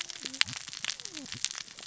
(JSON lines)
{"label": "biophony, cascading saw", "recorder": "SoundTrap 600 or HydroMoth"}